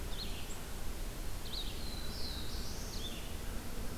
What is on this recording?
Red-eyed Vireo, Black-throated Blue Warbler, American Crow